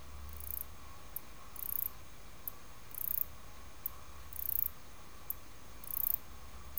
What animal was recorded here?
Ancistrura nigrovittata, an orthopteran